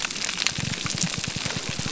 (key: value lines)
label: biophony, grouper groan
recorder: SoundTrap 300